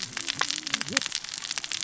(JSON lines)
{"label": "biophony, cascading saw", "recorder": "SoundTrap 600 or HydroMoth"}